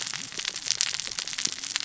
{"label": "biophony, cascading saw", "recorder": "SoundTrap 600 or HydroMoth"}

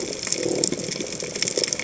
{"label": "biophony", "recorder": "HydroMoth"}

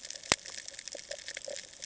{"label": "ambient", "recorder": "HydroMoth"}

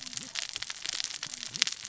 {"label": "biophony, cascading saw", "recorder": "SoundTrap 600 or HydroMoth"}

